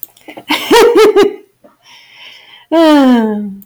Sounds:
Laughter